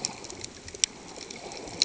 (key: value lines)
label: ambient
recorder: HydroMoth